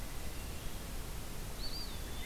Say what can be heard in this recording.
Eastern Wood-Pewee